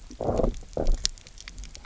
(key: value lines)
label: biophony, low growl
recorder: SoundTrap 300